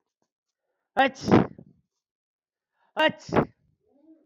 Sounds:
Sneeze